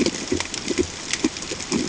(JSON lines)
{"label": "ambient", "recorder": "HydroMoth"}